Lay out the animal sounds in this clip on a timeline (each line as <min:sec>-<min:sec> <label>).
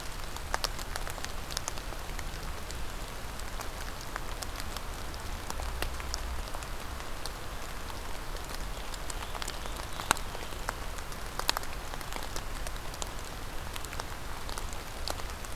0:08.4-0:10.5 Scarlet Tanager (Piranga olivacea)